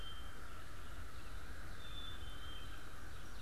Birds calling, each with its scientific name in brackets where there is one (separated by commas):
Red-eyed Vireo (Vireo olivaceus), American Crow (Corvus brachyrhynchos), Black-capped Chickadee (Poecile atricapillus)